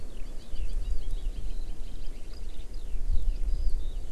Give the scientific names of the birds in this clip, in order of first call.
Alauda arvensis